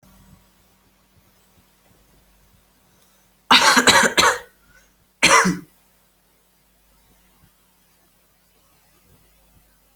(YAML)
expert_labels:
- quality: good
  cough_type: dry
  dyspnea: false
  wheezing: false
  stridor: false
  choking: false
  congestion: false
  nothing: true
  diagnosis: upper respiratory tract infection
  severity: mild
gender: female
respiratory_condition: false
fever_muscle_pain: true
status: COVID-19